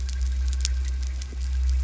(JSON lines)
{"label": "anthrophony, boat engine", "recorder": "SoundTrap 300"}